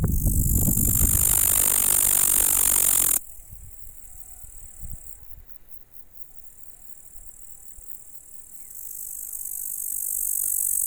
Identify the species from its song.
Tettigonia cantans